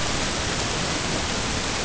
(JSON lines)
{"label": "ambient", "recorder": "HydroMoth"}